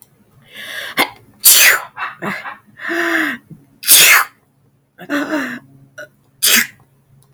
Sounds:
Sneeze